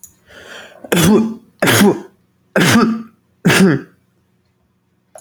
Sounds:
Sneeze